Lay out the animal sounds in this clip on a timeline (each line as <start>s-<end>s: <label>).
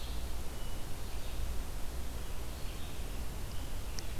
0.0s-4.2s: Red-eyed Vireo (Vireo olivaceus)
0.4s-1.5s: Hermit Thrush (Catharus guttatus)